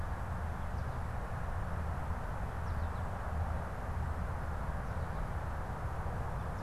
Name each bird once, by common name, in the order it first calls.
American Goldfinch